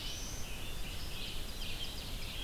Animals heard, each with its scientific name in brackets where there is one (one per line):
Hermit Thrush (Catharus guttatus)
Red-eyed Vireo (Vireo olivaceus)
Ovenbird (Seiurus aurocapilla)
Black-throated Blue Warbler (Setophaga caerulescens)